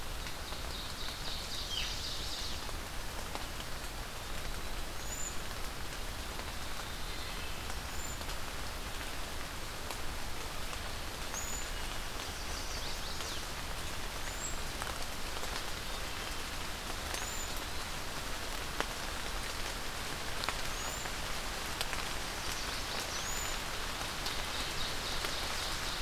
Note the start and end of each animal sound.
[0.00, 2.63] Ovenbird (Seiurus aurocapilla)
[4.78, 5.42] Cedar Waxwing (Bombycilla cedrorum)
[6.87, 7.59] Wood Thrush (Hylocichla mustelina)
[7.71, 8.44] Cedar Waxwing (Bombycilla cedrorum)
[10.97, 11.84] Cedar Waxwing (Bombycilla cedrorum)
[12.21, 13.45] Chestnut-sided Warbler (Setophaga pensylvanica)
[14.12, 14.73] Cedar Waxwing (Bombycilla cedrorum)
[17.01, 17.70] Cedar Waxwing (Bombycilla cedrorum)
[20.60, 21.11] Cedar Waxwing (Bombycilla cedrorum)
[22.99, 23.61] Cedar Waxwing (Bombycilla cedrorum)
[24.29, 26.01] Ovenbird (Seiurus aurocapilla)

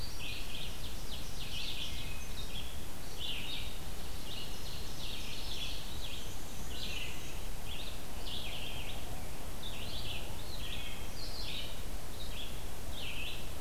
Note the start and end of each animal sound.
[0.00, 13.60] Red-eyed Vireo (Vireo olivaceus)
[0.43, 1.84] Ovenbird (Seiurus aurocapilla)
[3.95, 6.17] Ovenbird (Seiurus aurocapilla)
[5.86, 7.57] Black-and-white Warbler (Mniotilta varia)
[10.53, 11.18] Wood Thrush (Hylocichla mustelina)

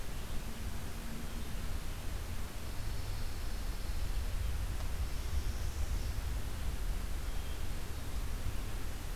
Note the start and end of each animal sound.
[2.59, 4.48] Pine Warbler (Setophaga pinus)
[4.99, 6.34] Northern Parula (Setophaga americana)

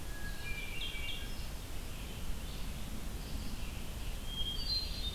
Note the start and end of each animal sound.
[0.00, 5.15] Red-eyed Vireo (Vireo olivaceus)
[0.06, 1.37] Hermit Thrush (Catharus guttatus)
[4.06, 5.15] Hermit Thrush (Catharus guttatus)

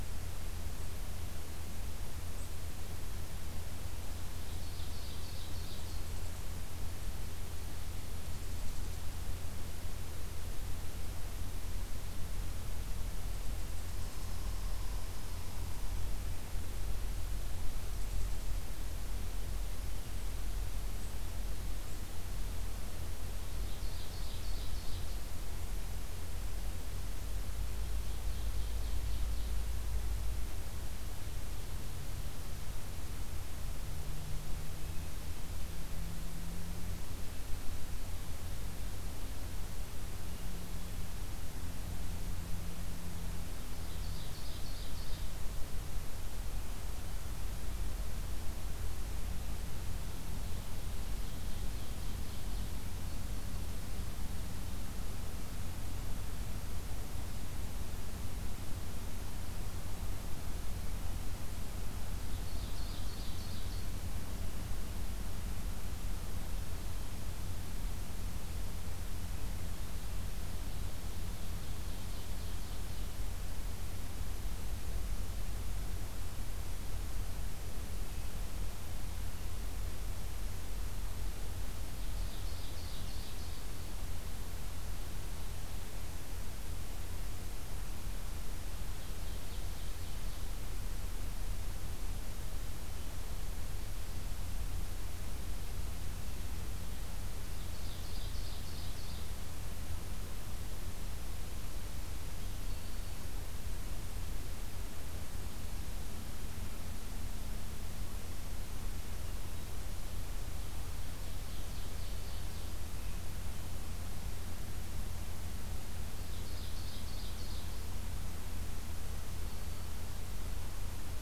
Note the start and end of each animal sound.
[4.49, 6.08] Ovenbird (Seiurus aurocapilla)
[23.51, 25.27] Ovenbird (Seiurus aurocapilla)
[27.81, 29.65] Ovenbird (Seiurus aurocapilla)
[43.60, 45.39] Ovenbird (Seiurus aurocapilla)
[50.39, 52.82] Ovenbird (Seiurus aurocapilla)
[62.21, 63.90] Ovenbird (Seiurus aurocapilla)
[70.69, 73.12] Ovenbird (Seiurus aurocapilla)
[81.94, 83.67] Ovenbird (Seiurus aurocapilla)
[88.73, 90.53] Ovenbird (Seiurus aurocapilla)
[97.59, 99.37] Ovenbird (Seiurus aurocapilla)
[102.13, 103.24] Black-throated Green Warbler (Setophaga virens)
[110.89, 112.72] Ovenbird (Seiurus aurocapilla)
[116.12, 117.72] Ovenbird (Seiurus aurocapilla)

